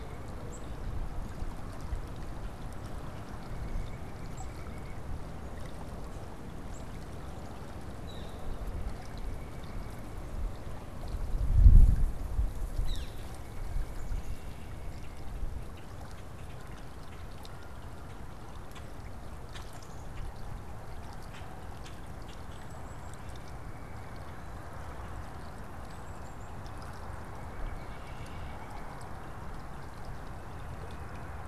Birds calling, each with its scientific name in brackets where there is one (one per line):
Black-capped Chickadee (Poecile atricapillus)
Northern Flicker (Colaptes auratus)
White-breasted Nuthatch (Sitta carolinensis)
Red-winged Blackbird (Agelaius phoeniceus)
unidentified bird